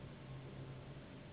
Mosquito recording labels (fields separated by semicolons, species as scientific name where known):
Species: Anopheles gambiae s.s.; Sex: female; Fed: unfed; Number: one; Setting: insect culture